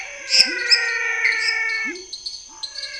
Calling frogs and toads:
Chaco tree frog, lesser tree frog, dwarf tree frog, pepper frog, menwig frog, Pithecopus azureus, Scinax fuscovarius
8:30pm

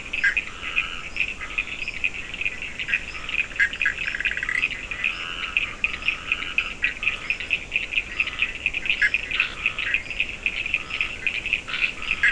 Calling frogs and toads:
Bischoff's tree frog, Dendropsophus nahdereri, fine-lined tree frog, Scinax perereca, Cochran's lime tree frog
5:00am

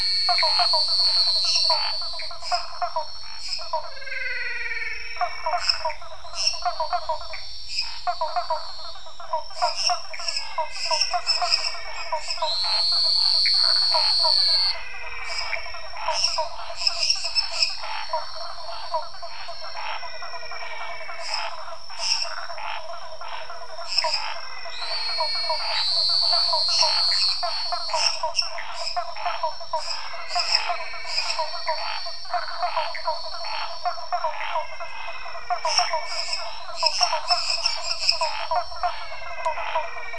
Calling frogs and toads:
Elachistocleis matogrosso, Cuyaba dwarf frog, Scinax fuscovarius, lesser tree frog, menwig frog, waxy monkey tree frog
10:00pm

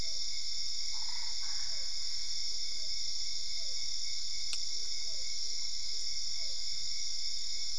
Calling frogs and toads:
Physalaemus cuvieri, Boana albopunctata
12:00am

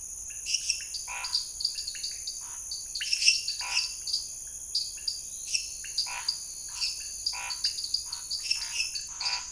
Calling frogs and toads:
Scinax fuscovarius, lesser tree frog, dwarf tree frog, pointedbelly frog, Elachistocleis matogrosso
7:30pm

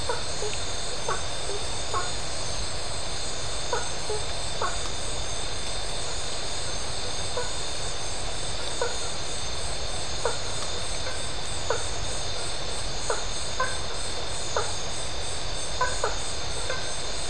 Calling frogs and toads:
blacksmith tree frog
9:30pm

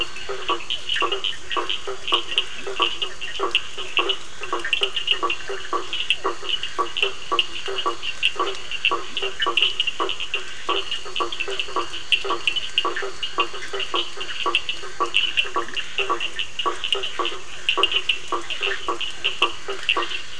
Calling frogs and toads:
blacksmith tree frog, two-colored oval frog, Scinax perereca, Cochran's lime tree frog
9:00pm

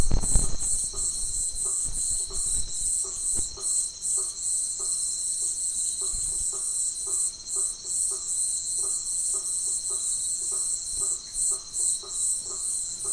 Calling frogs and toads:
blacksmith tree frog
10:30pm

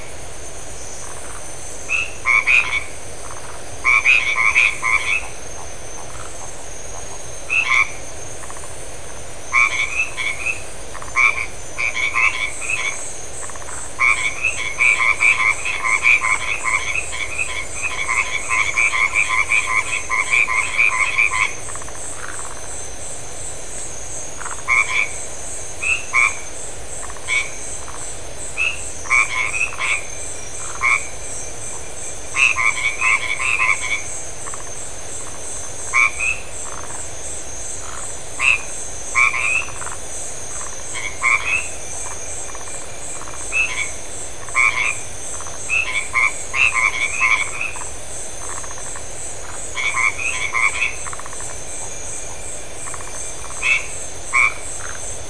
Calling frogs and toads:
Phyllomedusa distincta, white-edged tree frog
9:15pm

